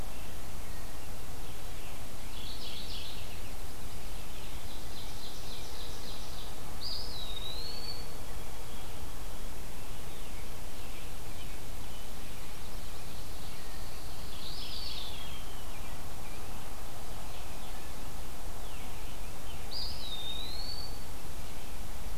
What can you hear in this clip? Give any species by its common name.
Mourning Warbler, Ovenbird, Eastern Wood-Pewee, White-throated Sparrow, Scarlet Tanager, Pine Warbler